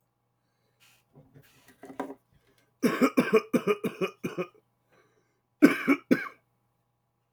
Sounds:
Cough